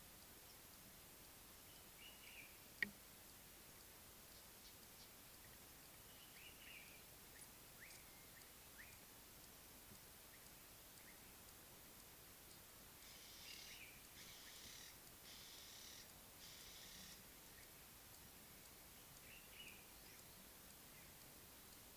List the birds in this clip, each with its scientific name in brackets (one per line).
Slate-colored Boubou (Laniarius funebris)
Ring-necked Dove (Streptopelia capicola)
Common Bulbul (Pycnonotus barbatus)